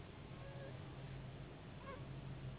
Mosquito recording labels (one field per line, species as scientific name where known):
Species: Anopheles gambiae s.s.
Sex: female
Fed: unfed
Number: one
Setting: insect culture